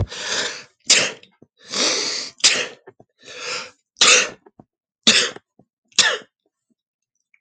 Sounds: Sneeze